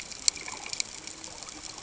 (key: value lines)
label: ambient
recorder: HydroMoth